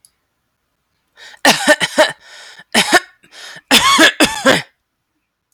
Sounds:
Cough